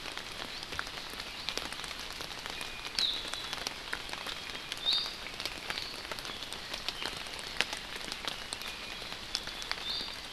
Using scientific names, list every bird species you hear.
Drepanis coccinea